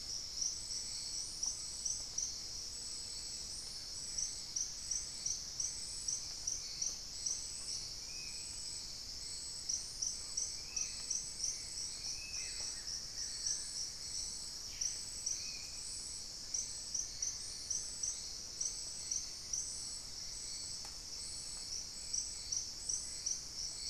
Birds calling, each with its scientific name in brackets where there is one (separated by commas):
unidentified bird, Plain-winged Antshrike (Thamnophilus schistaceus), Buff-throated Woodcreeper (Xiphorhynchus guttatus), Spot-winged Antshrike (Pygiptila stellaris), Gray Antwren (Myrmotherula menetriesii), Thrush-like Wren (Campylorhynchus turdinus)